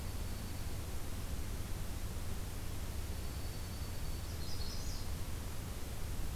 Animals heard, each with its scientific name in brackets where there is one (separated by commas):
Dark-eyed Junco (Junco hyemalis), Magnolia Warbler (Setophaga magnolia)